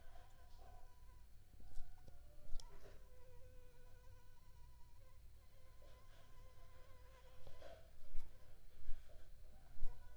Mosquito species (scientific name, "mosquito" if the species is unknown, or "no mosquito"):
Anopheles arabiensis